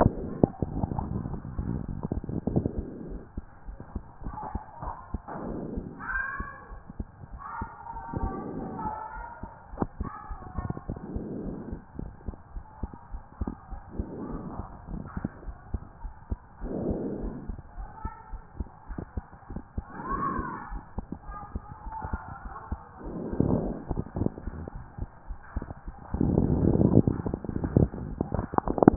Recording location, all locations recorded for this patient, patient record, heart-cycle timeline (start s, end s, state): pulmonary valve (PV)
aortic valve (AV)+pulmonary valve (PV)+tricuspid valve (TV)+mitral valve (MV)
#Age: Child
#Sex: Male
#Height: 136.0 cm
#Weight: 46.0 kg
#Pregnancy status: False
#Murmur: Absent
#Murmur locations: nan
#Most audible location: nan
#Systolic murmur timing: nan
#Systolic murmur shape: nan
#Systolic murmur grading: nan
#Systolic murmur pitch: nan
#Systolic murmur quality: nan
#Diastolic murmur timing: nan
#Diastolic murmur shape: nan
#Diastolic murmur grading: nan
#Diastolic murmur pitch: nan
#Diastolic murmur quality: nan
#Outcome: Normal
#Campaign: 2014 screening campaign
0.00	11.22	unannotated
11.22	11.44	diastole
11.44	11.56	S1
11.56	11.70	systole
11.70	11.80	S2
11.80	12.00	diastole
12.00	12.10	S1
12.10	12.26	systole
12.26	12.36	S2
12.36	12.54	diastole
12.54	12.64	S1
12.64	12.82	systole
12.82	12.90	S2
12.90	13.12	diastole
13.12	13.22	S1
13.22	13.40	systole
13.40	13.52	S2
13.52	13.72	diastole
13.72	13.82	S1
13.82	13.98	systole
13.98	14.06	S2
14.06	14.30	diastole
14.30	14.44	S1
14.44	14.58	systole
14.58	14.62	S2
14.62	14.90	diastole
14.90	15.02	S1
15.02	15.18	systole
15.18	15.28	S2
15.28	15.46	diastole
15.46	15.56	S1
15.56	15.72	systole
15.72	15.82	S2
15.82	16.02	diastole
16.02	16.12	S1
16.12	16.30	systole
16.30	16.40	S2
16.40	16.64	diastole
16.64	16.74	S1
16.74	16.86	systole
16.86	16.96	S2
16.96	17.22	diastole
17.22	17.34	S1
17.34	17.48	systole
17.48	17.58	S2
17.58	17.78	diastole
17.78	17.88	S1
17.88	18.04	systole
18.04	18.12	S2
18.12	18.32	diastole
18.32	18.42	S1
18.42	18.58	systole
18.58	18.68	S2
18.68	18.90	diastole
18.90	19.02	S1
19.02	19.16	systole
19.16	19.24	S2
19.24	19.50	diastole
19.50	19.62	S1
19.62	19.76	systole
19.76	19.84	S2
19.84	20.10	diastole
20.10	20.24	S1
20.24	20.36	systole
20.36	20.46	S2
20.46	20.72	diastole
20.72	20.82	S1
20.82	20.98	systole
20.98	21.06	S2
21.06	21.28	diastole
21.28	21.38	S1
21.38	21.54	systole
21.54	21.62	S2
21.62	21.86	diastole
21.86	21.94	S1
21.94	22.03	systole
22.03	22.17	S2
22.17	22.44	diastole
22.44	22.54	S1
22.54	22.70	systole
22.70	22.80	S2
22.80	23.10	diastole
23.10	23.22	S1
23.22	28.96	unannotated